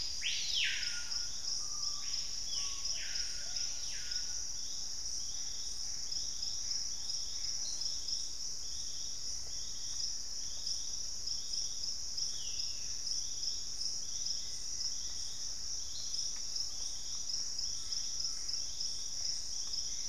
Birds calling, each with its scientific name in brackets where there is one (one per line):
Black-faced Antthrush (Formicarius analis)
Ringed Antpipit (Corythopis torquatus)
unidentified bird
Collared Trogon (Trogon collaris)
Purple-throated Fruitcrow (Querula purpurata)
Screaming Piha (Lipaugus vociferans)
Plain-winged Antshrike (Thamnophilus schistaceus)
Plumbeous Pigeon (Patagioenas plumbea)
Gray Antbird (Cercomacra cinerascens)